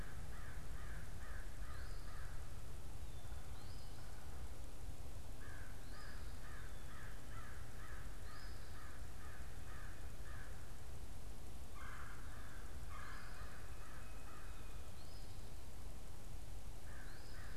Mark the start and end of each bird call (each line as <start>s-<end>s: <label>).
0.0s-2.6s: American Crow (Corvus brachyrhynchos)
0.0s-9.0s: Eastern Phoebe (Sayornis phoebe)
5.2s-10.7s: American Crow (Corvus brachyrhynchos)
11.7s-13.4s: Red-bellied Woodpecker (Melanerpes carolinus)
12.2s-17.6s: American Crow (Corvus brachyrhynchos)
12.7s-17.6s: Eastern Phoebe (Sayornis phoebe)